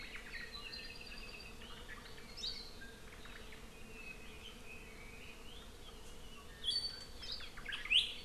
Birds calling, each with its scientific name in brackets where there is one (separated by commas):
Apapane (Himatione sanguinea), Omao (Myadestes obscurus)